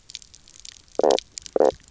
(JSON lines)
{"label": "biophony, knock croak", "recorder": "SoundTrap 300"}